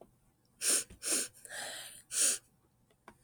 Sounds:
Sniff